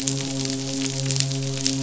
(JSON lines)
{"label": "biophony, midshipman", "recorder": "SoundTrap 500"}